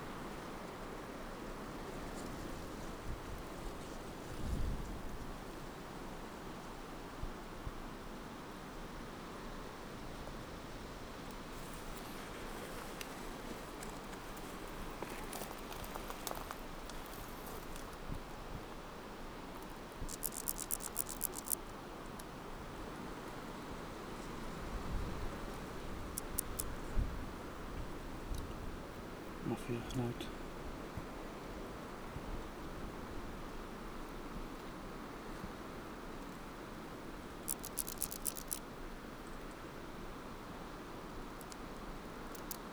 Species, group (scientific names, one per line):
Dociostaurus jagoi
Orthoptera